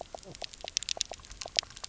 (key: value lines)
label: biophony, knock croak
recorder: SoundTrap 300